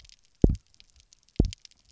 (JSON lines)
{"label": "biophony, double pulse", "recorder": "SoundTrap 300"}